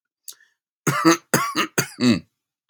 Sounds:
Cough